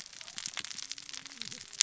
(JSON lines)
{"label": "biophony, cascading saw", "recorder": "SoundTrap 600 or HydroMoth"}